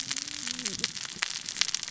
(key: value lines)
label: biophony, cascading saw
recorder: SoundTrap 600 or HydroMoth